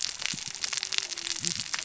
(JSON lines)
{"label": "biophony, cascading saw", "recorder": "SoundTrap 600 or HydroMoth"}